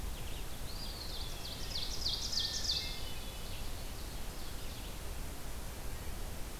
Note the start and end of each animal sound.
0.0s-6.6s: Blue-headed Vireo (Vireo solitarius)
0.4s-1.7s: Eastern Wood-Pewee (Contopus virens)
0.8s-5.1s: Ovenbird (Seiurus aurocapilla)
2.3s-3.9s: Hermit Thrush (Catharus guttatus)

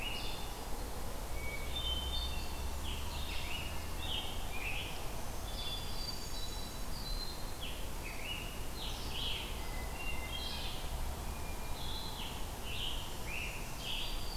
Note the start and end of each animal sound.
0.0s-14.4s: Red-eyed Vireo (Vireo olivaceus)
1.2s-2.7s: Hermit Thrush (Catharus guttatus)
2.6s-5.2s: Scarlet Tanager (Piranga olivacea)
5.5s-7.0s: Hermit Thrush (Catharus guttatus)
7.5s-9.7s: Scarlet Tanager (Piranga olivacea)
9.4s-10.8s: Hermit Thrush (Catharus guttatus)
11.7s-14.4s: Scarlet Tanager (Piranga olivacea)
13.7s-14.4s: Hermit Thrush (Catharus guttatus)

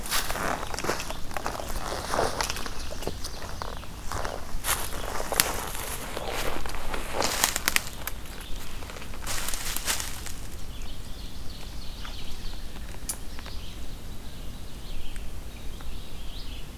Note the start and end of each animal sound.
10.5s-12.7s: Ovenbird (Seiurus aurocapilla)
10.6s-16.8s: Red-eyed Vireo (Vireo olivaceus)

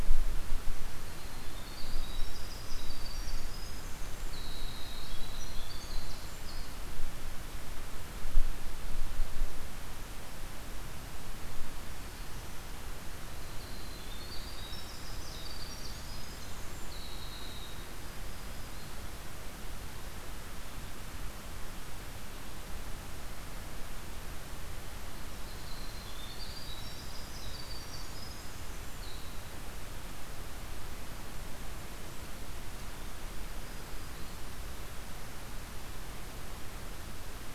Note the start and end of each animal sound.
0.8s-6.9s: Winter Wren (Troglodytes hiemalis)
13.4s-19.1s: Winter Wren (Troglodytes hiemalis)
25.2s-29.4s: Winter Wren (Troglodytes hiemalis)
33.2s-34.8s: Black-throated Green Warbler (Setophaga virens)

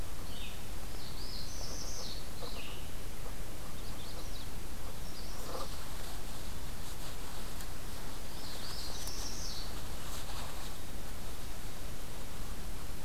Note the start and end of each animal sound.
0.0s-2.9s: Red-eyed Vireo (Vireo olivaceus)
0.6s-2.5s: Northern Parula (Setophaga americana)
3.5s-4.5s: Magnolia Warbler (Setophaga magnolia)
4.9s-5.8s: Magnolia Warbler (Setophaga magnolia)
8.2s-9.8s: Northern Parula (Setophaga americana)

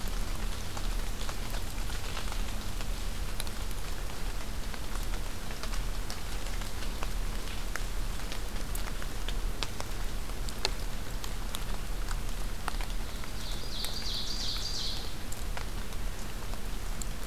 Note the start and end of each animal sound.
13.3s-15.1s: Ovenbird (Seiurus aurocapilla)

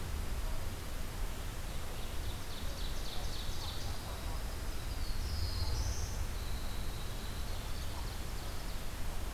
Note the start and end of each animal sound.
1.5s-4.1s: Ovenbird (Seiurus aurocapilla)
3.9s-5.1s: Dark-eyed Junco (Junco hyemalis)
4.6s-6.5s: Black-throated Blue Warbler (Setophaga caerulescens)
6.1s-7.7s: Winter Wren (Troglodytes hiemalis)
7.1s-9.1s: Ovenbird (Seiurus aurocapilla)

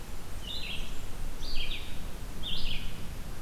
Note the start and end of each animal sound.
0.0s-1.4s: Blackburnian Warbler (Setophaga fusca)
0.0s-3.4s: Red-eyed Vireo (Vireo olivaceus)

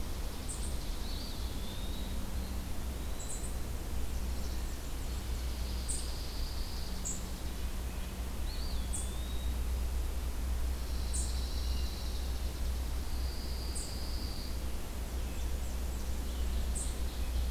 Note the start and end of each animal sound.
0.0s-1.5s: Chipping Sparrow (Spizella passerina)
0.0s-17.5s: unidentified call
0.9s-3.8s: Eastern Wood-Pewee (Contopus virens)
3.8s-5.3s: Black-and-white Warbler (Mniotilta varia)
4.4s-5.4s: Hermit Thrush (Catharus guttatus)
5.0s-7.8s: Chipping Sparrow (Spizella passerina)
5.4s-7.0s: Pine Warbler (Setophaga pinus)
7.3s-8.7s: Red-breasted Nuthatch (Sitta canadensis)
8.3s-9.7s: Eastern Wood-Pewee (Contopus virens)
10.5s-12.3s: Pine Warbler (Setophaga pinus)
10.6s-13.2s: Chipping Sparrow (Spizella passerina)
12.9s-14.7s: Pine Warbler (Setophaga pinus)
14.8s-16.8s: Black-and-white Warbler (Mniotilta varia)
15.2s-17.5s: Red-eyed Vireo (Vireo olivaceus)
16.1s-17.5s: Ovenbird (Seiurus aurocapilla)

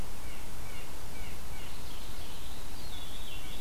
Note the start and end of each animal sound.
0.1s-3.6s: Blue Jay (Cyanocitta cristata)
1.6s-2.7s: Mourning Warbler (Geothlypis philadelphia)
2.7s-3.6s: Veery (Catharus fuscescens)

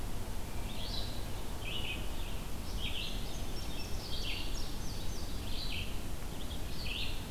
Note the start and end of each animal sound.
0.0s-7.3s: Red-eyed Vireo (Vireo olivaceus)
2.9s-5.4s: Indigo Bunting (Passerina cyanea)

